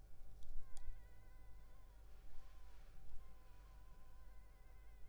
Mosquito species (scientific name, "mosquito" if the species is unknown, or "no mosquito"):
Culex pipiens complex